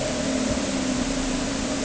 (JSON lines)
{"label": "anthrophony, boat engine", "recorder": "HydroMoth"}